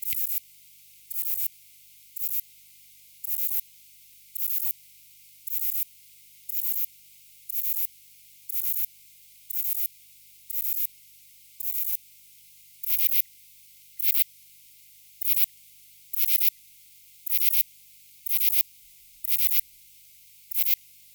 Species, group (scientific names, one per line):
Ephippigerida areolaria
Orthoptera